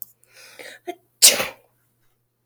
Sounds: Sneeze